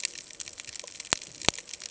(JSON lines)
{"label": "ambient", "recorder": "HydroMoth"}